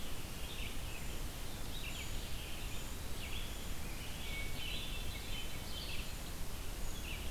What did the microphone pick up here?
Red-eyed Vireo, Hermit Thrush